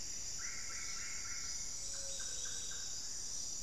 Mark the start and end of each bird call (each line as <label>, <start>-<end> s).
Plumbeous Antbird (Myrmelastes hyperythrus), 0.0-0.8 s
Buff-throated Saltator (Saltator maximus), 0.0-3.6 s
Solitary Black Cacique (Cacicus solitarius), 0.3-3.3 s